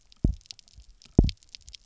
{"label": "biophony, double pulse", "recorder": "SoundTrap 300"}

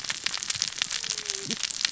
{"label": "biophony, cascading saw", "recorder": "SoundTrap 600 or HydroMoth"}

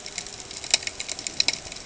{"label": "ambient", "recorder": "HydroMoth"}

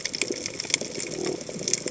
{"label": "biophony", "recorder": "HydroMoth"}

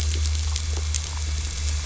{"label": "anthrophony, boat engine", "recorder": "SoundTrap 500"}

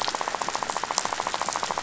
{"label": "biophony, rattle", "recorder": "SoundTrap 500"}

